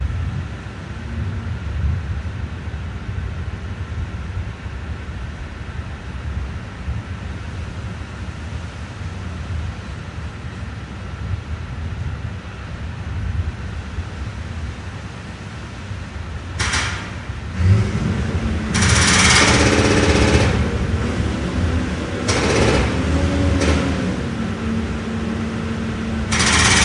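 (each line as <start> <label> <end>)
16.4 A jackhammer is operating at a construction site. 26.8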